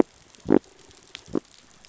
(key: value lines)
label: biophony
recorder: SoundTrap 500